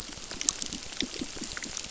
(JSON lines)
{"label": "biophony", "recorder": "SoundTrap 600"}